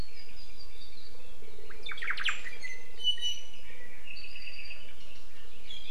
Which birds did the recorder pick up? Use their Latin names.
Myadestes obscurus, Himatione sanguinea